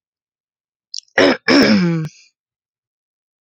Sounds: Throat clearing